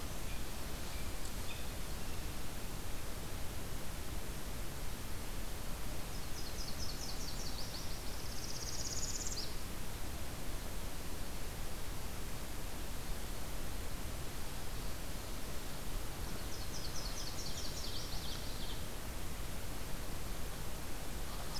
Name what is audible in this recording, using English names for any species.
Nashville Warbler, Northern Parula